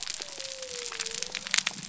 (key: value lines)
label: biophony
recorder: SoundTrap 300